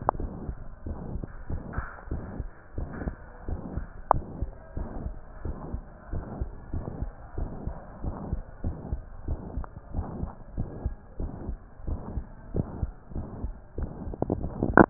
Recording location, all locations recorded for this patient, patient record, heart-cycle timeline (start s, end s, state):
mitral valve (MV)
aortic valve (AV)+pulmonary valve (PV)+tricuspid valve (TV)+mitral valve (MV)
#Age: Child
#Sex: Female
#Height: 128.0 cm
#Weight: 26.8 kg
#Pregnancy status: False
#Murmur: Present
#Murmur locations: aortic valve (AV)+mitral valve (MV)+pulmonary valve (PV)+tricuspid valve (TV)
#Most audible location: tricuspid valve (TV)
#Systolic murmur timing: Holosystolic
#Systolic murmur shape: Plateau
#Systolic murmur grading: II/VI
#Systolic murmur pitch: Medium
#Systolic murmur quality: Harsh
#Diastolic murmur timing: nan
#Diastolic murmur shape: nan
#Diastolic murmur grading: nan
#Diastolic murmur pitch: nan
#Diastolic murmur quality: nan
#Outcome: Abnormal
#Campaign: 2015 screening campaign
0.00	0.14	unannotated
0.14	0.30	S1
0.30	0.42	systole
0.42	0.56	S2
0.56	0.86	diastole
0.86	1.00	S1
1.00	1.12	systole
1.12	1.24	S2
1.24	1.48	diastole
1.48	1.62	S1
1.62	1.74	systole
1.74	1.88	S2
1.88	2.10	diastole
2.10	2.24	S1
2.24	2.36	systole
2.36	2.50	S2
2.50	2.76	diastole
2.76	2.88	S1
2.88	3.00	systole
3.00	3.14	S2
3.14	3.48	diastole
3.48	3.62	S1
3.62	3.74	systole
3.74	3.88	S2
3.88	4.14	diastole
4.14	4.24	S1
4.24	4.40	systole
4.40	4.52	S2
4.52	4.74	diastole
4.74	4.88	S1
4.88	5.00	systole
5.00	5.14	S2
5.14	5.44	diastole
5.44	5.56	S1
5.56	5.72	systole
5.72	5.82	S2
5.82	6.12	diastole
6.12	6.24	S1
6.24	6.38	systole
6.38	6.52	S2
6.52	6.74	diastole
6.74	6.86	S1
6.86	7.00	systole
7.00	7.12	S2
7.12	7.38	diastole
7.38	7.50	S1
7.50	7.64	systole
7.64	7.78	S2
7.78	8.04	diastole
8.04	8.18	S1
8.18	8.30	systole
8.30	8.42	S2
8.42	8.64	diastole
8.64	8.78	S1
8.78	8.90	systole
8.90	9.02	S2
9.02	9.28	diastole
9.28	9.44	S1
9.44	9.56	systole
9.56	9.66	S2
9.66	9.92	diastole
9.92	10.06	S1
10.06	10.18	systole
10.18	10.30	S2
10.30	10.56	diastole
10.56	10.68	S1
10.68	10.80	systole
10.80	10.96	S2
10.96	11.18	diastole
11.18	11.30	S1
11.30	11.46	systole
11.46	11.58	S2
11.58	11.86	diastole
11.86	12.00	S1
12.00	12.12	systole
12.12	12.24	S2
12.24	12.52	diastole
12.52	12.68	S1
12.68	12.78	systole
12.78	12.90	S2
12.90	13.16	diastole
13.16	13.28	S1
13.28	13.42	systole
13.42	13.56	S2
13.56	13.78	diastole
13.78	13.90	S1
13.90	14.02	systole
14.02	14.14	S2
14.14	14.40	diastole
14.40	14.90	unannotated